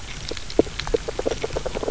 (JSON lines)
{"label": "biophony, grazing", "recorder": "SoundTrap 300"}